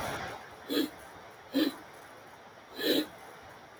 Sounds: Sniff